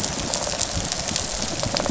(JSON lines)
{"label": "biophony, rattle response", "recorder": "SoundTrap 500"}